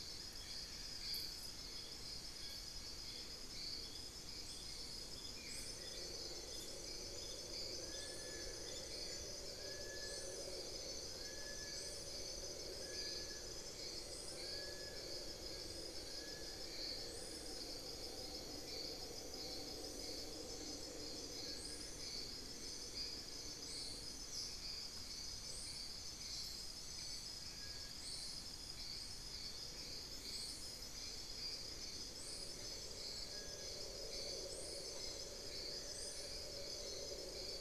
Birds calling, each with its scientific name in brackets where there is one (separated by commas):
Cinereous Tinamou (Crypturellus cinereus), Black-faced Antthrush (Formicarius analis), Long-billed Woodcreeper (Nasica longirostris), Amazonian Barred-Woodcreeper (Dendrocolaptes certhia), Buff-throated Woodcreeper (Xiphorhynchus guttatus)